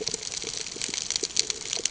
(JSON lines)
{"label": "ambient", "recorder": "HydroMoth"}